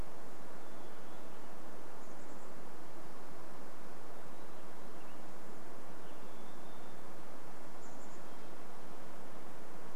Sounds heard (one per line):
Hermit Thrush song
Western Tanager song
Varied Thrush song
Chestnut-backed Chickadee call